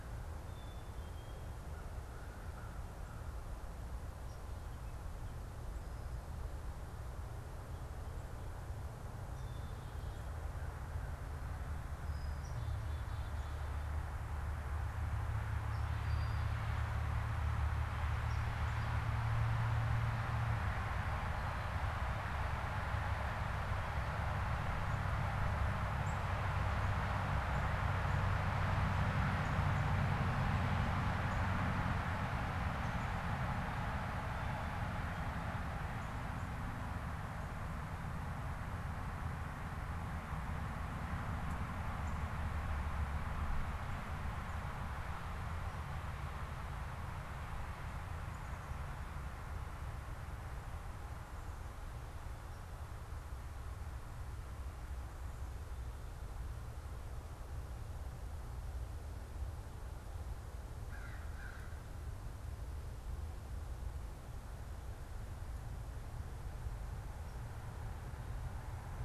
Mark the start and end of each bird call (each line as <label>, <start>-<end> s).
Black-capped Chickadee (Poecile atricapillus), 0.0-36.7 s
American Crow (Corvus brachyrhynchos), 60.7-61.9 s